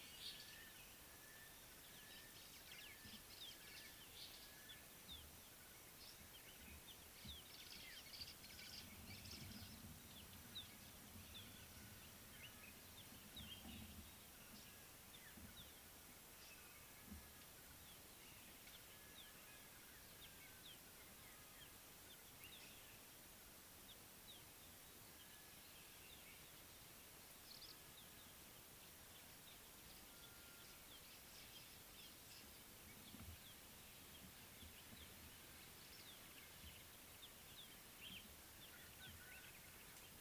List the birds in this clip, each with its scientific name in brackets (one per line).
Gray-headed Bushshrike (Malaconotus blanchoti)
Scarlet-chested Sunbird (Chalcomitra senegalensis)